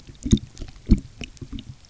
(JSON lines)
{"label": "geophony, waves", "recorder": "SoundTrap 300"}